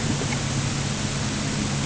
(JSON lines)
{"label": "anthrophony, boat engine", "recorder": "HydroMoth"}